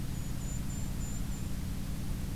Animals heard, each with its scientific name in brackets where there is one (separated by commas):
Golden-crowned Kinglet (Regulus satrapa)